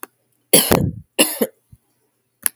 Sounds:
Cough